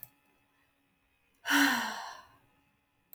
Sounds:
Sigh